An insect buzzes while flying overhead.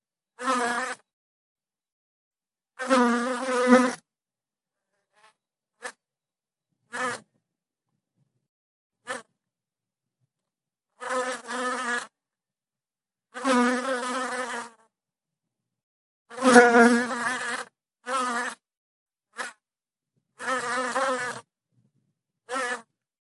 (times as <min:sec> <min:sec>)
0:00.3 0:01.0, 0:02.7 0:04.2, 0:05.8 0:05.9, 0:06.8 0:07.3, 0:09.0 0:09.3, 0:10.9 0:12.1, 0:13.3 0:14.8, 0:16.3 0:18.6, 0:19.4 0:19.5, 0:20.4 0:21.5, 0:22.5 0:22.9